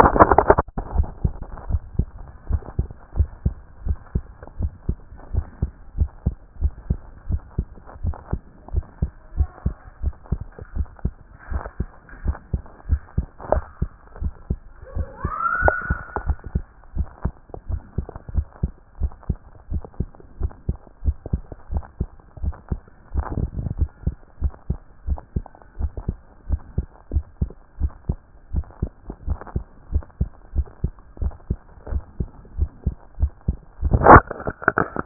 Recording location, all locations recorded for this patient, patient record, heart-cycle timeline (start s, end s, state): tricuspid valve (TV)
aortic valve (AV)+pulmonary valve (PV)+tricuspid valve (TV)+mitral valve (MV)
#Age: Child
#Sex: Male
#Height: 136.0 cm
#Weight: 30.9 kg
#Pregnancy status: False
#Murmur: Absent
#Murmur locations: nan
#Most audible location: nan
#Systolic murmur timing: nan
#Systolic murmur shape: nan
#Systolic murmur grading: nan
#Systolic murmur pitch: nan
#Systolic murmur quality: nan
#Diastolic murmur timing: nan
#Diastolic murmur shape: nan
#Diastolic murmur grading: nan
#Diastolic murmur pitch: nan
#Diastolic murmur quality: nan
#Outcome: Abnormal
#Campaign: 2014 screening campaign
0.00	0.20	S1
0.20	0.42	systole
0.42	0.58	S2
0.58	0.88	diastole
0.88	1.06	S1
1.06	1.22	systole
1.22	1.36	S2
1.36	1.66	diastole
1.66	1.82	S1
1.82	1.96	systole
1.96	2.10	S2
2.10	2.46	diastole
2.46	2.62	S1
2.62	2.76	systole
2.76	2.88	S2
2.88	3.14	diastole
3.14	3.30	S1
3.30	3.44	systole
3.44	3.58	S2
3.58	3.84	diastole
3.84	3.98	S1
3.98	4.12	systole
4.12	4.26	S2
4.26	4.58	diastole
4.58	4.72	S1
4.72	4.86	systole
4.86	5.00	S2
5.00	5.32	diastole
5.32	5.46	S1
5.46	5.58	systole
5.58	5.70	S2
5.70	5.96	diastole
5.96	6.10	S1
6.10	6.22	systole
6.22	6.34	S2
6.34	6.60	diastole
6.60	6.76	S1
6.76	6.88	systole
6.88	7.02	S2
7.02	7.28	diastole
7.28	7.42	S1
7.42	7.54	systole
7.54	7.66	S2
7.66	8.02	diastole
8.02	8.16	S1
8.16	8.30	systole
8.30	8.40	S2
8.40	8.72	diastole
8.72	8.84	S1
8.84	8.98	systole
8.98	9.10	S2
9.10	9.34	diastole
9.34	9.48	S1
9.48	9.62	systole
9.62	9.74	S2
9.74	10.02	diastole
10.02	10.14	S1
10.14	10.30	systole
10.30	10.42	S2
10.42	10.74	diastole
10.74	10.88	S1
10.88	11.04	systole
11.04	11.16	S2
11.16	11.50	diastole
11.50	11.64	S1
11.64	11.78	systole
11.78	11.88	S2
11.88	12.22	diastole
12.22	12.36	S1
12.36	12.52	systole
12.52	12.62	S2
12.62	12.88	diastole
12.88	13.00	S1
13.00	13.14	systole
13.14	13.26	S2
13.26	13.50	diastole
13.50	13.64	S1
13.64	13.78	systole
13.78	13.90	S2
13.90	14.20	diastole
14.20	14.34	S1
14.34	14.46	systole
14.46	14.60	S2
14.60	14.94	diastole
14.94	15.08	S1
15.08	15.22	systole
15.22	15.34	S2
15.34	15.60	diastole
15.60	15.74	S1
15.74	15.86	systole
15.86	15.98	S2
15.98	16.24	diastole
16.24	16.38	S1
16.38	16.54	systole
16.54	16.66	S2
16.66	16.94	diastole
16.94	17.08	S1
17.08	17.24	systole
17.24	17.34	S2
17.34	17.68	diastole
17.68	17.82	S1
17.82	17.94	systole
17.94	18.06	S2
18.06	18.34	diastole
18.34	18.46	S1
18.46	18.62	systole
18.62	18.72	S2
18.72	18.98	diastole
18.98	19.12	S1
19.12	19.28	systole
19.28	19.38	S2
19.38	19.70	diastole
19.70	19.84	S1
19.84	19.98	systole
19.98	20.08	S2
20.08	20.38	diastole
20.38	20.52	S1
20.52	20.68	systole
20.68	20.78	S2
20.78	21.04	diastole
21.04	21.18	S1
21.18	21.32	systole
21.32	21.42	S2
21.42	21.70	diastole
21.70	21.84	S1
21.84	21.96	systole
21.96	22.08	S2
22.08	22.42	diastole
22.42	22.56	S1
22.56	22.70	systole
22.70	22.80	S2
22.80	23.12	diastole
23.12	23.26	S1
23.26	23.38	systole
23.38	23.52	S2
23.52	23.78	diastole
23.78	23.92	S1
23.92	24.06	systole
24.06	24.16	S2
24.16	24.42	diastole
24.42	24.54	S1
24.54	24.66	systole
24.66	24.78	S2
24.78	25.06	diastole
25.06	25.20	S1
25.20	25.32	systole
25.32	25.46	S2
25.46	25.78	diastole
25.78	25.92	S1
25.92	26.06	systole
26.06	26.18	S2
26.18	26.48	diastole
26.48	26.62	S1
26.62	26.76	systole
26.76	26.88	S2
26.88	27.14	diastole
27.14	27.24	S1
27.24	27.38	systole
27.38	27.50	S2
27.50	27.78	diastole
27.78	27.92	S1
27.92	28.08	systole
28.08	28.20	S2
28.20	28.52	diastole
28.52	28.66	S1
28.66	28.80	systole
28.80	28.92	S2
28.92	29.26	diastole
29.26	29.40	S1
29.40	29.54	systole
29.54	29.64	S2
29.64	29.90	diastole
29.90	30.06	S1
30.06	30.18	systole
30.18	30.30	S2
30.30	30.54	diastole
30.54	30.66	S1
30.66	30.80	systole
30.80	30.92	S2
30.92	31.20	diastole
31.20	31.34	S1
31.34	31.46	systole
31.46	31.58	S2
31.58	31.90	diastole
31.90	32.04	S1
32.04	32.18	systole
32.18	32.30	S2
32.30	32.56	diastole
32.56	32.70	S1
32.70	32.84	systole
32.84	32.96	S2
32.96	33.18	diastole
33.18	33.34	S1
33.34	33.46	systole
33.46	33.60	S2
33.60	33.84	diastole
33.84	34.02	S1
34.02	34.06	systole
34.06	34.22	S2
34.22	34.46	diastole
34.46	34.56	S1
34.56	34.76	systole
34.76	34.90	S2
34.90	35.06	diastole